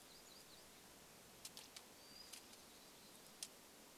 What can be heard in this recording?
unidentified bird chip note, warbler song, Hermit Thrush song